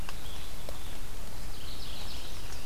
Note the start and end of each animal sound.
[0.00, 1.09] Evening Grosbeak (Coccothraustes vespertinus)
[1.25, 2.37] Mourning Warbler (Geothlypis philadelphia)
[2.12, 2.65] Chestnut-sided Warbler (Setophaga pensylvanica)

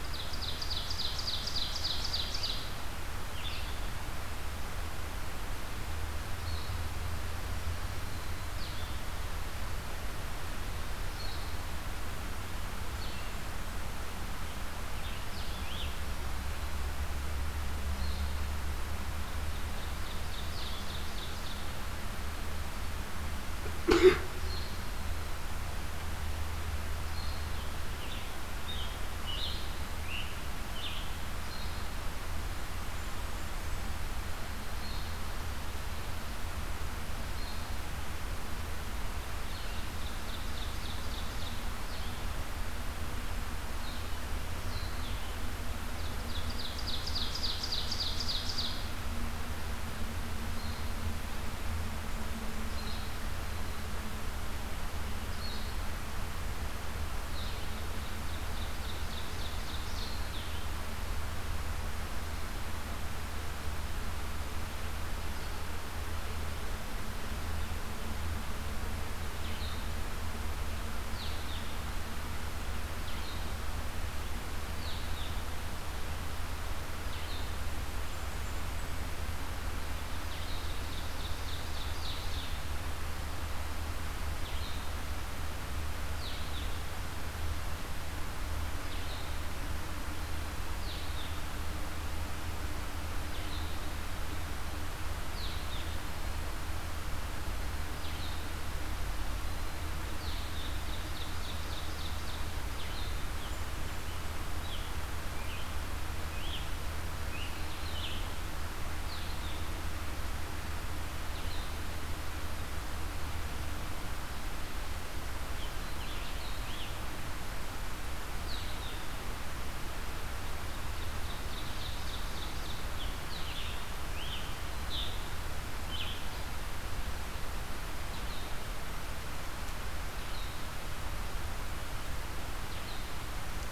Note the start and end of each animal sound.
[0.00, 2.77] Ovenbird (Seiurus aurocapilla)
[0.00, 133.71] Red-eyed Vireo (Vireo olivaceus)
[12.56, 13.89] Blackburnian Warbler (Setophaga fusca)
[18.63, 21.94] Ovenbird (Seiurus aurocapilla)
[27.93, 31.10] Scarlet Tanager (Piranga olivacea)
[32.31, 34.16] Blackburnian Warbler (Setophaga fusca)
[39.62, 41.80] Ovenbird (Seiurus aurocapilla)
[45.73, 49.30] Ovenbird (Seiurus aurocapilla)
[57.61, 60.69] Ovenbird (Seiurus aurocapilla)
[77.79, 79.35] Blackburnian Warbler (Setophaga fusca)
[80.04, 82.86] Ovenbird (Seiurus aurocapilla)
[100.20, 102.72] Ovenbird (Seiurus aurocapilla)
[103.33, 104.62] Blackburnian Warbler (Setophaga fusca)
[104.50, 108.40] Scarlet Tanager (Piranga olivacea)
[120.89, 123.73] Ovenbird (Seiurus aurocapilla)
[123.49, 126.28] Scarlet Tanager (Piranga olivacea)

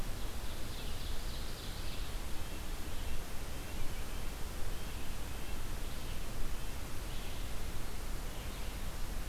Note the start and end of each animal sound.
[0.00, 2.07] Ovenbird (Seiurus aurocapilla)
[2.24, 6.92] Red-breasted Nuthatch (Sitta canadensis)
[6.69, 9.29] Red-eyed Vireo (Vireo olivaceus)

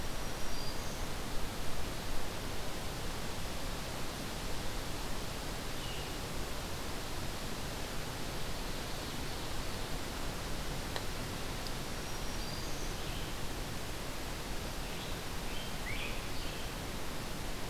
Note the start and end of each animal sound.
[0.00, 1.09] Black-throated Green Warbler (Setophaga virens)
[5.70, 6.24] Red-eyed Vireo (Vireo olivaceus)
[11.94, 13.09] Black-throated Green Warbler (Setophaga virens)
[12.86, 13.30] Red-eyed Vireo (Vireo olivaceus)
[14.48, 16.80] Rose-breasted Grosbeak (Pheucticus ludovicianus)

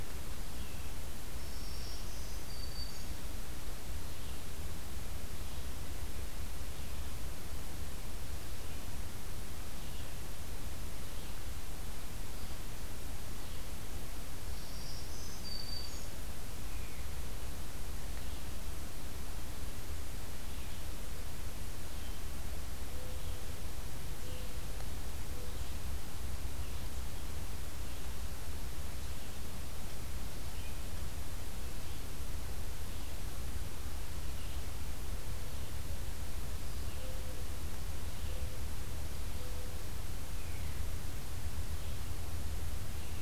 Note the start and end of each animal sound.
[0.00, 9.08] Red-eyed Vireo (Vireo olivaceus)
[1.45, 3.17] Black-throated Green Warbler (Setophaga virens)
[9.52, 43.22] Red-eyed Vireo (Vireo olivaceus)
[14.52, 16.15] Black-throated Green Warbler (Setophaga virens)
[22.86, 25.64] Mourning Dove (Zenaida macroura)
[36.73, 39.84] Mourning Dove (Zenaida macroura)

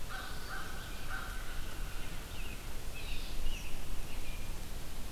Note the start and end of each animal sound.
[0.00, 1.52] American Crow (Corvus brachyrhynchos)
[1.38, 2.18] Red-winged Blackbird (Agelaius phoeniceus)
[2.17, 4.52] American Robin (Turdus migratorius)
[2.82, 3.36] Red-eyed Vireo (Vireo olivaceus)

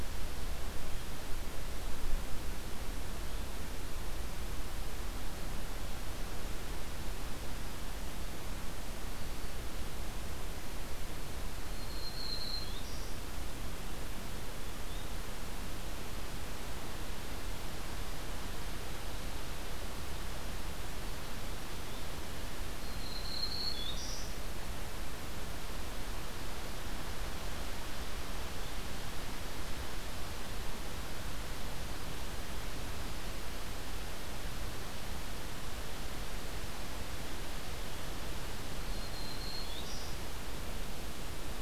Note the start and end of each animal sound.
[11.63, 13.19] Black-throated Green Warbler (Setophaga virens)
[14.67, 15.15] Yellow-bellied Flycatcher (Empidonax flaviventris)
[21.70, 22.05] Yellow-bellied Flycatcher (Empidonax flaviventris)
[22.71, 24.43] Black-throated Green Warbler (Setophaga virens)
[38.83, 40.12] Black-throated Green Warbler (Setophaga virens)

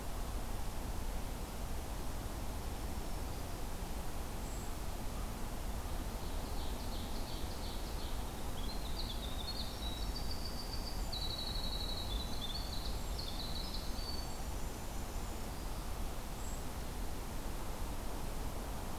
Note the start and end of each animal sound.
[2.50, 3.59] Black-throated Green Warbler (Setophaga virens)
[4.33, 4.78] Brown Creeper (Certhia americana)
[6.20, 8.27] Ovenbird (Seiurus aurocapilla)
[8.54, 15.55] Winter Wren (Troglodytes hiemalis)
[16.36, 16.66] Brown Creeper (Certhia americana)

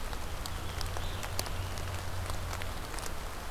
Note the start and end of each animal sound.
[0.14, 1.92] Scarlet Tanager (Piranga olivacea)

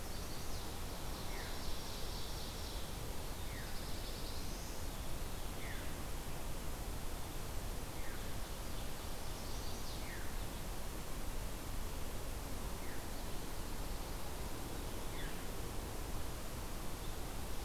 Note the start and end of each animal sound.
[0.00, 2.86] Ovenbird (Seiurus aurocapilla)
[1.20, 1.68] Veery (Catharus fuscescens)
[3.09, 4.99] Black-throated Blue Warbler (Setophaga caerulescens)
[3.43, 3.77] Veery (Catharus fuscescens)
[5.51, 5.93] Veery (Catharus fuscescens)
[7.88, 8.31] Veery (Catharus fuscescens)
[9.14, 10.00] Chestnut-sided Warbler (Setophaga pensylvanica)
[9.94, 10.34] Veery (Catharus fuscescens)
[12.76, 13.12] Veery (Catharus fuscescens)
[14.96, 15.43] Veery (Catharus fuscescens)

